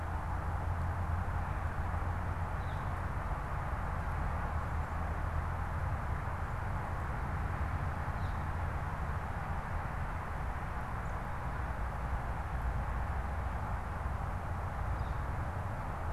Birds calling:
Northern Flicker (Colaptes auratus)

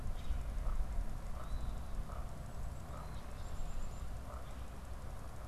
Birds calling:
unidentified bird, Common Grackle (Quiscalus quiscula)

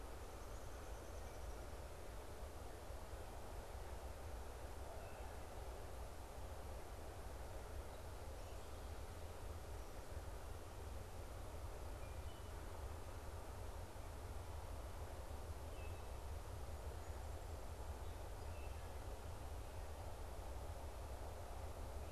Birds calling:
Downy Woodpecker (Dryobates pubescens), Song Sparrow (Melospiza melodia), Wood Thrush (Hylocichla mustelina)

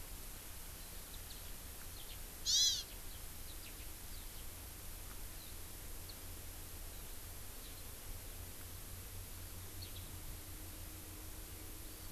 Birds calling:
Hawaii Amakihi (Chlorodrepanis virens), Eurasian Skylark (Alauda arvensis)

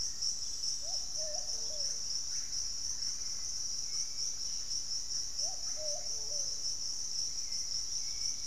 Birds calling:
Black-faced Antthrush (Formicarius analis), unidentified bird, Russet-backed Oropendola (Psarocolius angustifrons), Hauxwell's Thrush (Turdus hauxwelli)

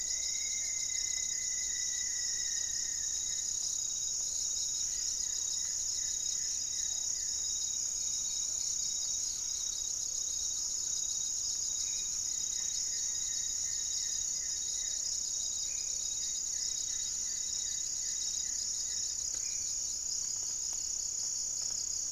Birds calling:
Plumbeous Pigeon (Patagioenas plumbea), Goeldi's Antbird (Akletos goeldii), Rufous-fronted Antthrush (Formicarius rufifrons), Black-faced Antthrush (Formicarius analis), Thrush-like Wren (Campylorhynchus turdinus), unidentified bird

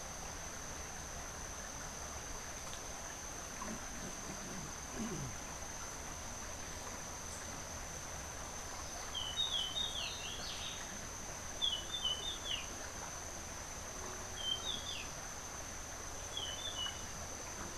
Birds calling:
Rufous-breasted Wren (Pheugopedius rutilus)

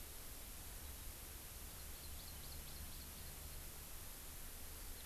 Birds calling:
Hawaii Amakihi (Chlorodrepanis virens)

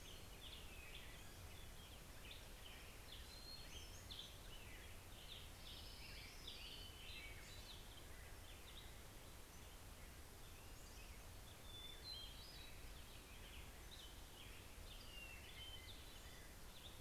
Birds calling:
Hermit Thrush (Catharus guttatus), Pacific-slope Flycatcher (Empidonax difficilis), Black-headed Grosbeak (Pheucticus melanocephalus), Orange-crowned Warbler (Leiothlypis celata)

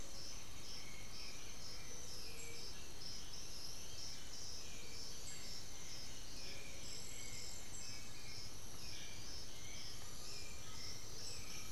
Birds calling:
White-winged Becard (Pachyramphus polychopterus), unidentified bird, Black-billed Thrush (Turdus ignobilis), Undulated Tinamou (Crypturellus undulatus)

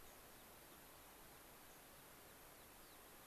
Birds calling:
unidentified bird, American Pipit (Anthus rubescens)

